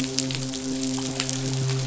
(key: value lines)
label: biophony, midshipman
recorder: SoundTrap 500